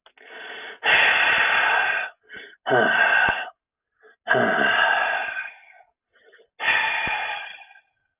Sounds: Sigh